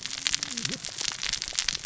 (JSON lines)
{"label": "biophony, cascading saw", "recorder": "SoundTrap 600 or HydroMoth"}